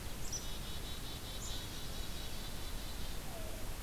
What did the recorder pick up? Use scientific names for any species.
Poecile atricapillus, Coccyzus americanus